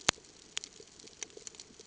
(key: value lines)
label: ambient
recorder: HydroMoth